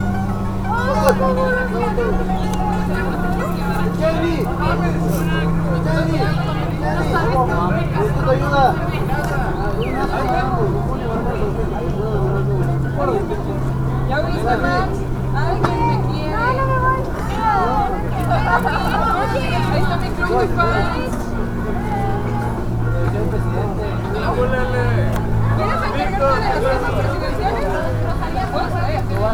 Are there only adults present?
no